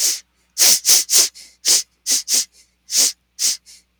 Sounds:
Sniff